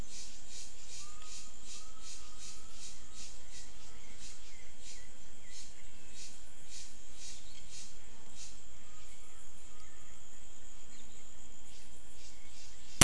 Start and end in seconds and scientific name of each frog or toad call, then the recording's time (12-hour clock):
5.5	6.6	Physalaemus albonotatus
6:00pm